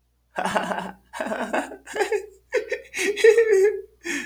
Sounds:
Laughter